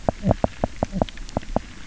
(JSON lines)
{"label": "biophony, knock croak", "recorder": "SoundTrap 300"}